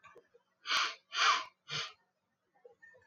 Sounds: Sniff